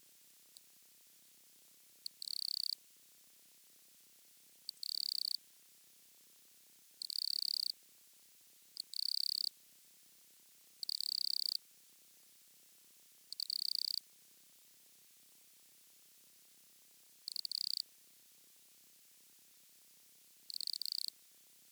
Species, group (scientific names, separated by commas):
Nemobius sylvestris, Orthoptera